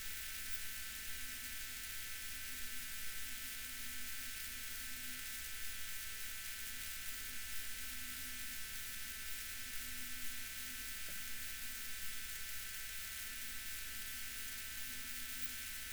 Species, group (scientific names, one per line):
Odontura glabricauda
Orthoptera